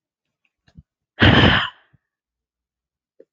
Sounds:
Sigh